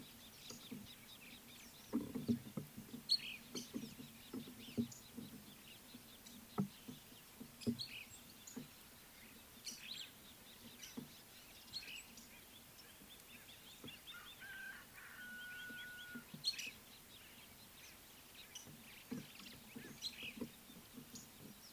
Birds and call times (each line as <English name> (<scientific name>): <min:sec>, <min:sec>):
Superb Starling (Lamprotornis superbus): 0:03.2, 0:09.8
Gabar Goshawk (Micronisus gabar): 0:13.7